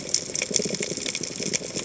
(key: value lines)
label: biophony, chatter
recorder: HydroMoth